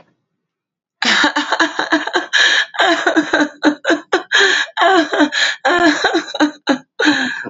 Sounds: Laughter